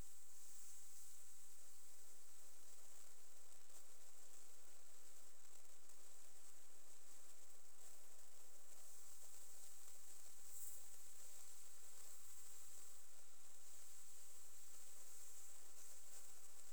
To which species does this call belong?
Pholidoptera griseoaptera